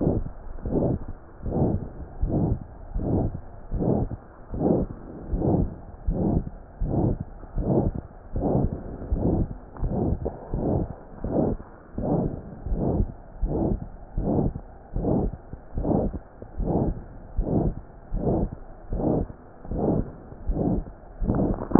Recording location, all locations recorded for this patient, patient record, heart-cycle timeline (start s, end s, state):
pulmonary valve (PV)
aortic valve (AV)+pulmonary valve (PV)+tricuspid valve (TV)+mitral valve (MV)
#Age: Adolescent
#Sex: Female
#Height: 147.0 cm
#Weight: 36.1 kg
#Pregnancy status: False
#Murmur: Present
#Murmur locations: aortic valve (AV)+mitral valve (MV)+pulmonary valve (PV)+tricuspid valve (TV)
#Most audible location: pulmonary valve (PV)
#Systolic murmur timing: Mid-systolic
#Systolic murmur shape: Diamond
#Systolic murmur grading: III/VI or higher
#Systolic murmur pitch: High
#Systolic murmur quality: Harsh
#Diastolic murmur timing: nan
#Diastolic murmur shape: nan
#Diastolic murmur grading: nan
#Diastolic murmur pitch: nan
#Diastolic murmur quality: nan
#Outcome: Abnormal
#Campaign: 2015 screening campaign
0.00	1.06	unannotated
1.06	1.42	diastole
1.42	1.52	S1
1.52	1.72	systole
1.72	1.82	S2
1.82	2.22	diastole
2.22	2.34	S1
2.34	2.42	systole
2.42	2.58	S2
2.58	2.93	diastole
2.93	3.04	S1
3.04	3.20	systole
3.20	3.32	S2
3.32	3.72	diastole
3.72	3.86	S1
3.86	3.96	systole
3.96	4.10	S2
4.10	4.52	diastole
4.52	4.60	S1
4.60	4.70	systole
4.70	4.86	S2
4.86	5.28	diastole
5.28	5.42	S1
5.42	5.58	systole
5.58	5.68	S2
5.68	6.04	diastole
6.04	6.20	S1
6.20	6.31	systole
6.31	6.44	S2
6.44	6.80	diastole
6.80	6.94	S1
6.94	7.06	systole
7.06	7.16	S2
7.16	7.52	diastole
7.52	7.65	S1
7.65	7.84	systole
7.84	7.96	S2
7.96	8.33	diastole
8.33	8.44	S1
8.44	8.61	systole
8.61	8.70	S2
8.70	9.08	diastole
9.08	9.16	S1
9.16	9.33	systole
9.33	9.47	S2
9.47	9.80	diastole
9.80	9.92	S1
9.92	10.08	systole
10.08	10.16	S2
10.16	10.50	diastole
10.50	10.62	S1
10.62	10.77	systole
10.77	10.88	S2
10.88	11.21	diastole
11.21	11.31	S1
11.31	11.48	systole
11.48	11.58	S2
11.58	11.95	diastole
11.95	12.05	S1
12.05	12.18	systole
12.18	12.32	S2
12.32	12.68	diastole
12.68	12.82	S1
12.82	12.95	systole
12.95	13.08	S2
13.08	13.40	diastole
13.40	13.49	S1
13.49	13.68	systole
13.68	13.77	S2
13.77	14.16	diastole
14.16	14.25	S1
14.25	14.44	systole
14.44	14.54	S2
14.54	14.93	diastole
14.93	15.05	S1
15.05	15.24	systole
15.24	15.32	S2
15.32	15.74	diastole
15.74	15.87	S1
15.87	16.04	systole
16.04	16.14	S2
16.14	16.57	diastole
16.57	16.69	S1
16.69	16.86	systole
16.86	16.98	S2
16.98	17.36	diastole
17.36	17.46	S1
17.46	17.63	systole
17.63	17.74	S2
17.74	18.10	diastole
18.10	18.22	S1
18.22	18.40	systole
18.40	18.49	S2
18.49	18.89	diastole
18.89	18.99	S1
18.99	19.12	systole
19.12	19.28	S2
19.28	19.71	diastole
19.71	21.79	unannotated